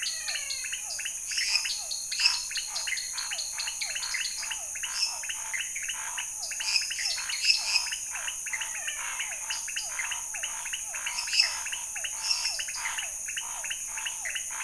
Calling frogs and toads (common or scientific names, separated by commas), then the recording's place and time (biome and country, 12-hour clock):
menwig frog, dwarf tree frog, pointedbelly frog, Physalaemus cuvieri, lesser tree frog, Scinax fuscovarius
Cerrado, Brazil, 11:00pm